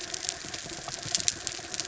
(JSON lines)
{"label": "anthrophony, mechanical", "recorder": "SoundTrap 300"}